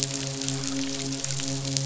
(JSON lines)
{"label": "biophony, midshipman", "recorder": "SoundTrap 500"}